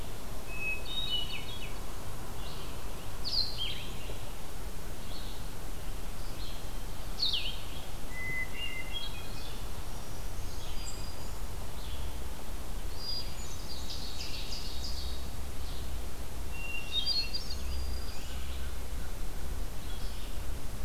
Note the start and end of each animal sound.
0.3s-1.9s: Hermit Thrush (Catharus guttatus)
1.0s-20.8s: Red-eyed Vireo (Vireo olivaceus)
3.2s-7.8s: Blue-headed Vireo (Vireo solitarius)
8.0s-9.8s: Hermit Thrush (Catharus guttatus)
9.8s-11.6s: Black-throated Green Warbler (Setophaga virens)
12.9s-13.9s: Hermit Thrush (Catharus guttatus)
13.0s-15.4s: Ovenbird (Seiurus aurocapilla)
16.3s-18.1s: Hermit Thrush (Catharus guttatus)
16.6s-18.5s: Black-throated Green Warbler (Setophaga virens)

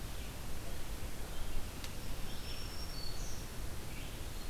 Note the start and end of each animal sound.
0.0s-4.5s: Red-eyed Vireo (Vireo olivaceus)
2.0s-3.5s: Black-throated Green Warbler (Setophaga virens)

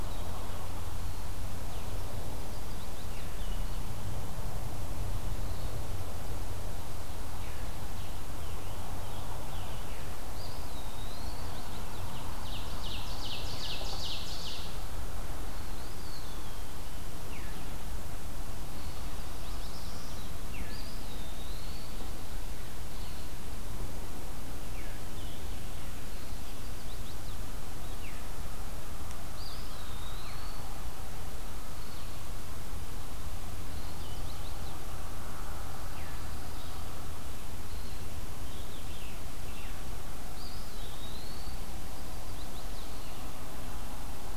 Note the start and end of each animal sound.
0.0s-44.4s: Blue-headed Vireo (Vireo solitarius)
2.3s-3.3s: Chestnut-sided Warbler (Setophaga pensylvanica)
7.9s-10.1s: Scarlet Tanager (Piranga olivacea)
10.2s-11.5s: Eastern Wood-Pewee (Contopus virens)
10.9s-12.2s: Chestnut-sided Warbler (Setophaga pensylvanica)
12.3s-14.8s: Ovenbird (Seiurus aurocapilla)
15.7s-16.8s: Eastern Wood-Pewee (Contopus virens)
17.3s-17.5s: Veery (Catharus fuscescens)
18.8s-20.3s: Black-throated Blue Warbler (Setophaga caerulescens)
19.0s-19.9s: Chestnut-sided Warbler (Setophaga pensylvanica)
20.4s-21.9s: Eastern Wood-Pewee (Contopus virens)
20.5s-20.7s: Veery (Catharus fuscescens)
24.6s-24.9s: Veery (Catharus fuscescens)
26.2s-27.4s: Chestnut-sided Warbler (Setophaga pensylvanica)
28.0s-28.2s: Veery (Catharus fuscescens)
29.2s-30.8s: Eastern Wood-Pewee (Contopus virens)
30.2s-30.5s: Veery (Catharus fuscescens)
33.6s-34.8s: Chestnut-sided Warbler (Setophaga pensylvanica)
35.9s-36.2s: Veery (Catharus fuscescens)
38.3s-39.2s: Scarlet Tanager (Piranga olivacea)
40.2s-41.7s: Eastern Wood-Pewee (Contopus virens)
41.8s-43.1s: Chestnut-sided Warbler (Setophaga pensylvanica)

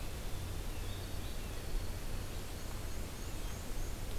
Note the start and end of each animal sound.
0.0s-3.2s: White-throated Sparrow (Zonotrichia albicollis)
0.0s-4.2s: Red-eyed Vireo (Vireo olivaceus)
2.2s-4.0s: Black-and-white Warbler (Mniotilta varia)

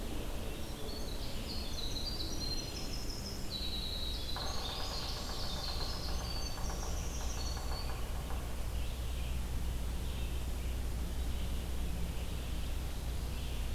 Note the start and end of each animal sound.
0.0s-13.7s: Red-eyed Vireo (Vireo olivaceus)
0.3s-7.6s: Winter Wren (Troglodytes hiemalis)
4.2s-8.4s: Yellow-bellied Sapsucker (Sphyrapicus varius)
6.5s-8.1s: Black-throated Green Warbler (Setophaga virens)

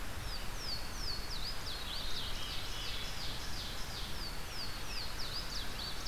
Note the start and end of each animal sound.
0.0s-2.5s: Louisiana Waterthrush (Parkesia motacilla)
1.6s-3.1s: Veery (Catharus fuscescens)
1.8s-4.2s: Ovenbird (Seiurus aurocapilla)
3.9s-6.1s: Louisiana Waterthrush (Parkesia motacilla)

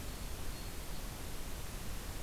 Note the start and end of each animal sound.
0.0s-1.0s: Black-throated Green Warbler (Setophaga virens)

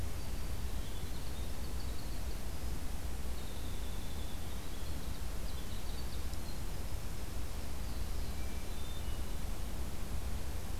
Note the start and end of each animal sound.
0.0s-2.7s: Winter Wren (Troglodytes hiemalis)
3.3s-7.8s: Winter Wren (Troglodytes hiemalis)
7.6s-8.6s: Black-throated Blue Warbler (Setophaga caerulescens)
8.2s-9.4s: Hermit Thrush (Catharus guttatus)

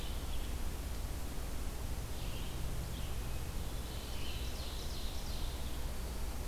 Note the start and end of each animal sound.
0.0s-6.5s: Red-eyed Vireo (Vireo olivaceus)
3.5s-6.0s: Ovenbird (Seiurus aurocapilla)

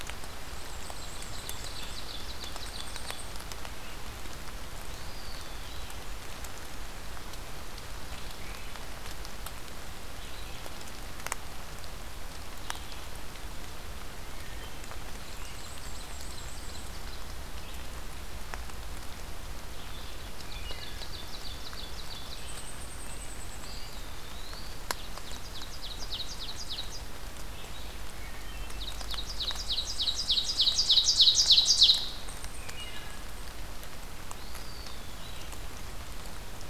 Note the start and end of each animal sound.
0.5s-2.0s: Black-and-white Warbler (Mniotilta varia)
0.6s-3.3s: Ovenbird (Seiurus aurocapilla)
2.4s-3.4s: unidentified call
4.7s-6.1s: Eastern Wood-Pewee (Contopus virens)
8.1s-13.1s: Red-eyed Vireo (Vireo olivaceus)
15.1s-17.3s: Ovenbird (Seiurus aurocapilla)
15.1s-16.9s: Black-and-white Warbler (Mniotilta varia)
17.2s-28.1s: Red-eyed Vireo (Vireo olivaceus)
20.2s-22.5s: Ovenbird (Seiurus aurocapilla)
20.4s-21.2s: Wood Thrush (Hylocichla mustelina)
22.1s-24.0s: Red-breasted Nuthatch (Sitta canadensis)
22.2s-23.9s: unidentified call
23.5s-24.8s: Eastern Wood-Pewee (Contopus virens)
24.7s-27.1s: Ovenbird (Seiurus aurocapilla)
28.0s-28.9s: Wood Thrush (Hylocichla mustelina)
28.5s-32.2s: Ovenbird (Seiurus aurocapilla)
29.3s-31.1s: Black-and-white Warbler (Mniotilta varia)
32.1s-33.5s: unidentified call
32.4s-33.3s: Wood Thrush (Hylocichla mustelina)
34.1s-35.2s: Eastern Wood-Pewee (Contopus virens)

